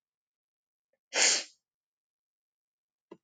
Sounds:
Sniff